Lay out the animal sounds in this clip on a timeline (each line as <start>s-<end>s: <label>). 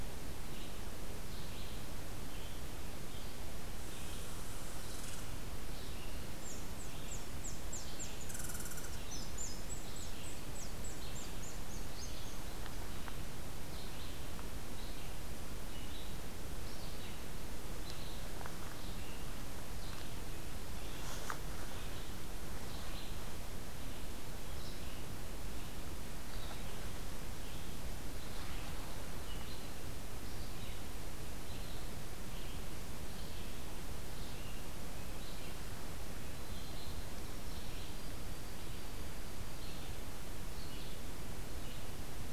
0.0s-42.3s: Red-eyed Vireo (Vireo olivaceus)
3.9s-12.4s: Red Squirrel (Tamiasciurus hudsonicus)
37.1s-39.7s: White-throated Sparrow (Zonotrichia albicollis)